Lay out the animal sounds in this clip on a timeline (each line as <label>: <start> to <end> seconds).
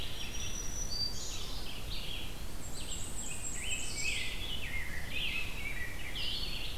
Black-throated Green Warbler (Setophaga virens): 0.0 to 1.5 seconds
Red-eyed Vireo (Vireo olivaceus): 0.0 to 6.8 seconds
Black-and-white Warbler (Mniotilta varia): 2.5 to 4.4 seconds
Rose-breasted Grosbeak (Pheucticus ludovicianus): 3.1 to 6.7 seconds